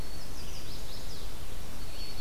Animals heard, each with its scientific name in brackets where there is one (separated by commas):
Red-eyed Vireo (Vireo olivaceus), White-throated Sparrow (Zonotrichia albicollis), Chestnut-sided Warbler (Setophaga pensylvanica), Eastern Wood-Pewee (Contopus virens)